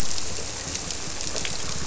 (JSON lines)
{"label": "biophony", "recorder": "SoundTrap 300"}